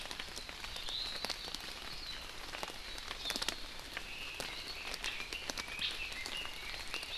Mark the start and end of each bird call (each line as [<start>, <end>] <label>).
[0.72, 1.12] Iiwi (Drepanis coccinea)
[3.92, 4.42] Omao (Myadestes obscurus)
[4.42, 7.12] Red-billed Leiothrix (Leiothrix lutea)